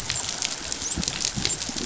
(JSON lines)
{"label": "biophony, dolphin", "recorder": "SoundTrap 500"}